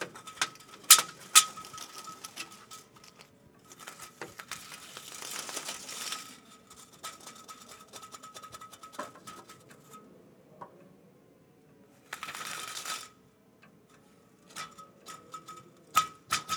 Is the car alarm going off?
no